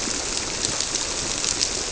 {"label": "biophony", "recorder": "SoundTrap 300"}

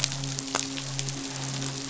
{"label": "biophony, midshipman", "recorder": "SoundTrap 500"}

